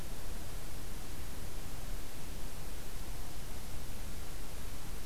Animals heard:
forest ambience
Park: Acadia National Park